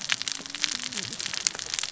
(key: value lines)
label: biophony, cascading saw
recorder: SoundTrap 600 or HydroMoth